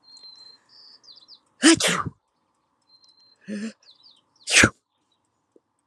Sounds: Sneeze